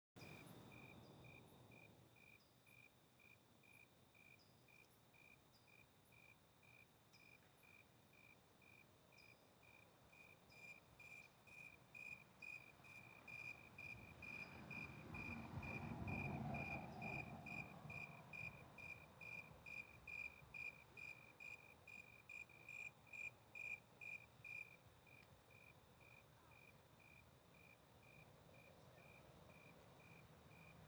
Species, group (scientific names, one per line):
Oecanthus rileyi
Orthoptera